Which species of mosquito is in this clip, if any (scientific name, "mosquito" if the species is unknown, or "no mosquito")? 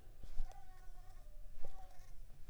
Mansonia uniformis